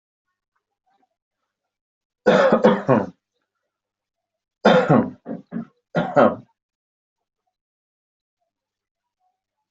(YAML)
expert_labels:
- quality: good
  cough_type: dry
  dyspnea: false
  wheezing: false
  stridor: false
  choking: false
  congestion: false
  nothing: true
  diagnosis: upper respiratory tract infection
  severity: mild
age: 57
gender: male
respiratory_condition: false
fever_muscle_pain: false
status: COVID-19